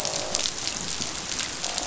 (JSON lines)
{"label": "biophony, croak", "recorder": "SoundTrap 500"}